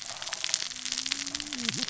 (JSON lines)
{"label": "biophony, cascading saw", "recorder": "SoundTrap 600 or HydroMoth"}